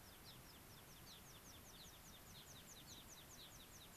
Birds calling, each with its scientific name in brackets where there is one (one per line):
American Pipit (Anthus rubescens)
Gray-crowned Rosy-Finch (Leucosticte tephrocotis)